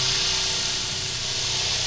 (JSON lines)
{"label": "anthrophony, boat engine", "recorder": "SoundTrap 500"}